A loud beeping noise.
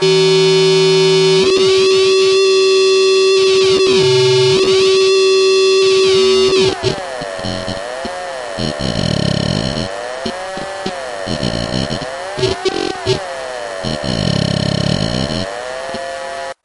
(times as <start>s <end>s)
0.0s 1.5s